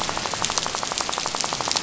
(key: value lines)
label: biophony, rattle
recorder: SoundTrap 500